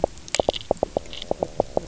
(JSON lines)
{"label": "biophony, knock croak", "recorder": "SoundTrap 300"}